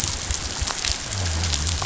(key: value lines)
label: biophony
recorder: SoundTrap 500